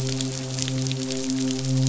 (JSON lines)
{"label": "biophony, midshipman", "recorder": "SoundTrap 500"}